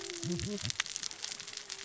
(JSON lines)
{"label": "biophony, cascading saw", "recorder": "SoundTrap 600 or HydroMoth"}